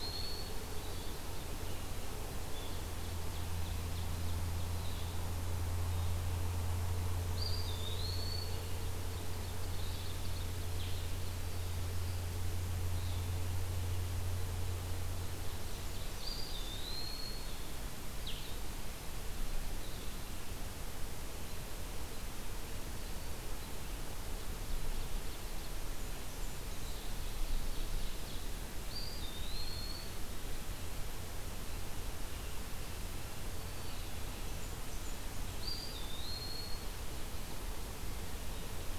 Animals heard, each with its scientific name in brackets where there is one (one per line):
Blue-headed Vireo (Vireo solitarius)
Blackburnian Warbler (Setophaga fusca)
Ovenbird (Seiurus aurocapilla)
Eastern Wood-Pewee (Contopus virens)